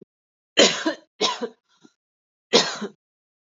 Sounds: Cough